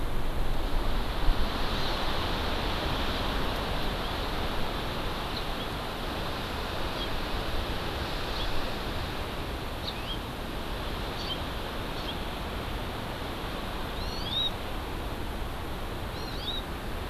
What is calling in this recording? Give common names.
Hawaii Amakihi, House Finch